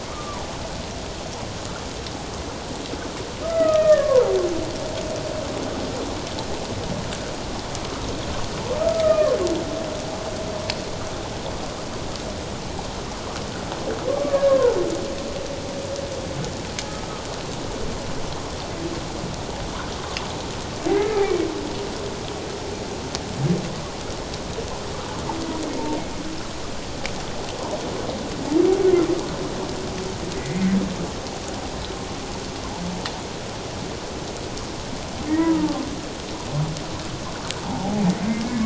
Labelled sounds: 0.0	0.4	humpback whale, 1.1 to 1.3 kHz
3.4	4.3	humpback whale, 0.78 to 2.1 kHz
8.8	9.4	humpback whale, 1.0 to 1.3 kHz
14.1	14.8	humpback whale, 0.84 to 1.8 kHz
20.9	21.5	humpback whale, 1.9 to 2.4 kHz
30.4	30.8	humpback whale, 1.9 to 2.2 kHz
35.3	35.7	humpback whale, 1.2 to 2.0 kHz
37.6	38.6	humpback whale, 0.78 to 1.8 kHz

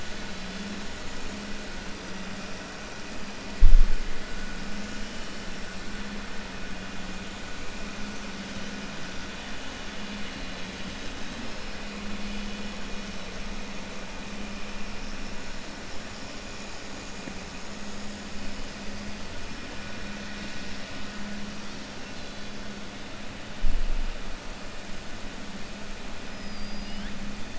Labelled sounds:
26.3	27.2	killer whale, 1.6 to 5.7 kHz

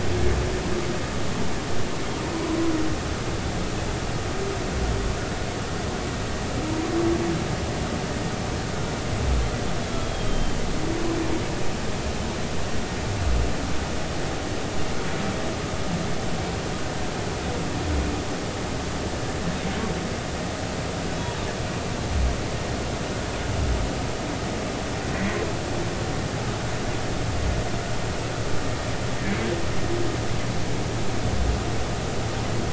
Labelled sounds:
6.7	6.9	humpback whale, 0.90 to 1.2 kHz
9.9	10.6	humpback whale, 3.1 to 3.4 kHz

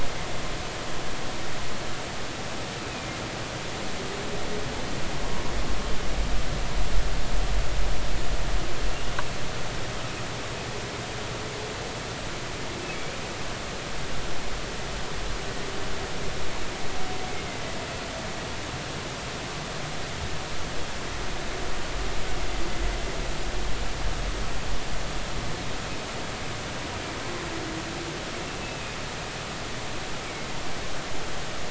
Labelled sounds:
28.6	29.0	humpback whale, 2.4 to 2.7 kHz

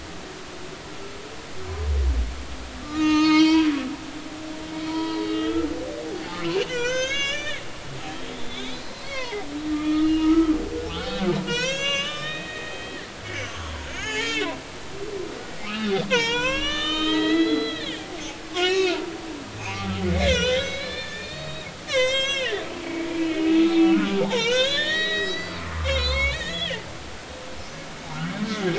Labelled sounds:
2.8	4.6	humpback whale, 0.86 to 6.6 kHz
4.9	5.7	humpback whale, 0.90 to 3.4 kHz
6.4	7.6	humpback whale, 1.4 to 7.0 kHz
8.3	10.5	humpback whale, 0.80 to 3.9 kHz
11.5	14.5	humpback whale, 0.80 to 7.4 kHz
15.6	19.0	humpback whale, 0.86 to 7.6 kHz
19.6	26.8	humpback whale, 0.80 to 8.0 kHz

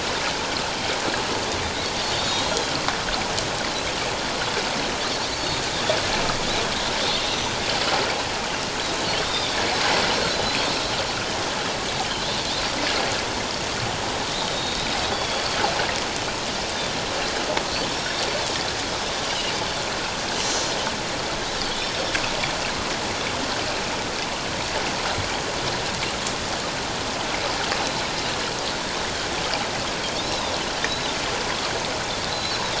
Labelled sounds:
2.2	2.8	Pacific white-sided dolphin, 3.1 to 3.8 kHz
5.3	5.6	Pacific white-sided dolphin, 4.3 to 4.6 kHz
9.2	9.6	Pacific white-sided dolphin, 3.3 to 3.8 kHz
10.5	10.8	Pacific white-sided dolphin, 4.3 to 4.5 kHz
14.3	15.6	Pacific white-sided dolphin, 3.3 to 4.5 kHz
17.8	18.2	Pacific white-sided dolphin, 3.6 to 5.6 kHz
19.3	19.5	Pacific white-sided dolphin, 2.8 to 3.1 kHz
20.4	20.7	Pacific white-sided dolphin, 5.8 to 5.9 kHz
21.7	22.2	Pacific white-sided dolphin, 3.2 to 5.5 kHz
32.3	32.6	Pacific white-sided dolphin, 3.8 to 6.8 kHz

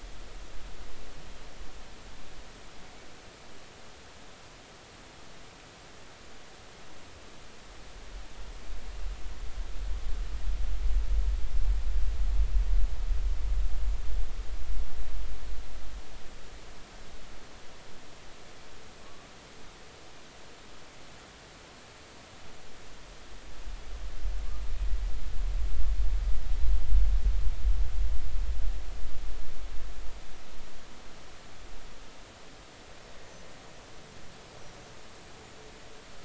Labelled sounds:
19.0	19.3	killer whale, Bigg's (transient), 1.1 to 1.2 kHz

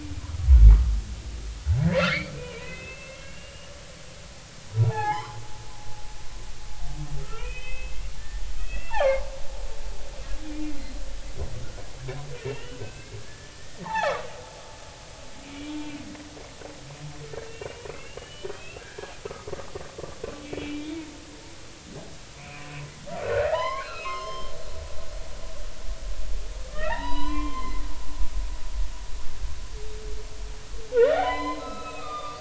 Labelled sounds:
2.1	3.7	humpback whale, 1.6 to 3.7 kHz
4.7	5.4	humpback whale, 0.80 to 3.3 kHz
7.2	9.2	humpback whale, 1.0 to 4.5 kHz
12.4	14.3	humpback whale, 0.80 to 3.6 kHz
15.5	15.9	humpback whale, 2.8 to 3.5 kHz
17.5	19.1	humpback whale, 1.5 to 3.3 kHz
20.6	20.9	humpback whale, 2.3 to 2.4 kHz
22.4	22.7	humpback whale, 2.1 to 2.7 kHz
23.4	24.5	humpback whale, 0.80 to 5.4 kHz
26.7	27.8	humpback whale, 0.80 to 5.0 kHz
30.9	32.3	humpback whale, 0.80 to 5.2 kHz

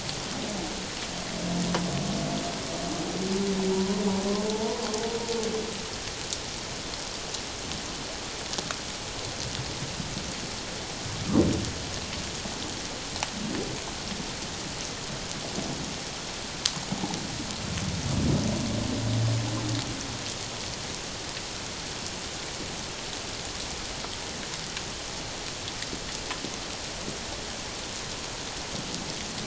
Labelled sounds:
3.7	4.8	humpback whale, 0.78 to 1.1 kHz

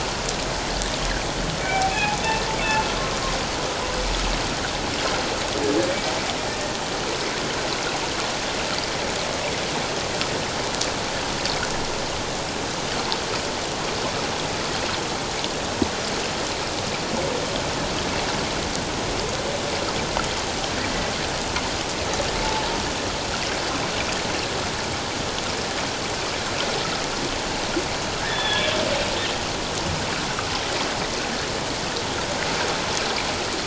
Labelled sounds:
1.6	2.2	humpback whale, 0.78 to 2.7 kHz
28.2	28.7	humpback whale, 1.6 to 3.6 kHz

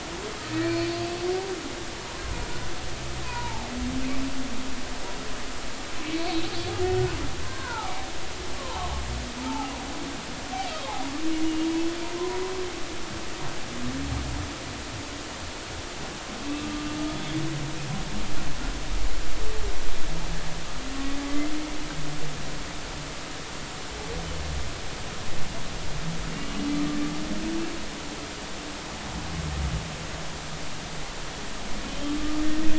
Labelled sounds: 0.6	1.1	humpback whale, 2.3 to 4.5 kHz
3.2	3.7	humpback whale, 0.80 to 1.1 kHz
7.4	7.9	humpback whale, 0.80 to 1.6 kHz
8.6	9.7	humpback whale, 0.80 to 1.2 kHz
16.4	16.7	humpback whale, 2.6 to 2.7 kHz
21.3	21.5	humpback whale, 2.0 to 2.1 kHz
26.3	26.7	humpback whale, 2.8 to 2.9 kHz
31.9	32.1	humpback whale, 3.0 to 3.2 kHz

